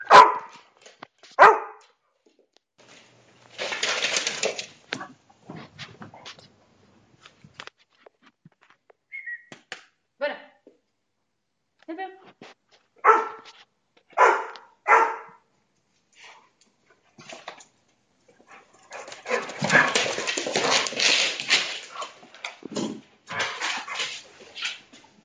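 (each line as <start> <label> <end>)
0.0 A dog barks nearby with a faint echo. 2.0
3.4 A plastic rattles nearby. 6.4
7.2 A device is being moved. 8.3
9.0 Someone is whistling indoors with a faint echo. 9.5
9.5 Two taps. 9.9
10.1 A person is calling out. 10.8
11.8 Someone is speaking indoors with a slight echo. 12.8
12.9 A dog barks three times indoors with a slight echo. 15.4
17.0 A rattling noise in the distance. 17.9
18.7 A dog breathes heavily and scratches the floor while approaching with increasing volume. 25.2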